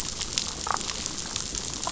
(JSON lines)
{"label": "biophony, damselfish", "recorder": "SoundTrap 500"}